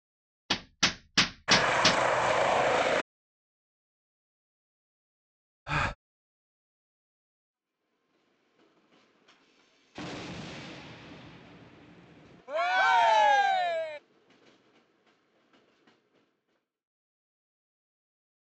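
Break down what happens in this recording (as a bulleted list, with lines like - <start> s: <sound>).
- 0.5 s: the sound of a hammer can be heard
- 1.5 s: a helicopter is audible
- 5.7 s: someone gasps
- 7.4 s: you can hear a quiet train fading in and then fading out
- 10.0 s: faint thunder is heard
- 12.5 s: people cheer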